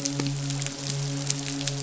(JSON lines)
{"label": "biophony, midshipman", "recorder": "SoundTrap 500"}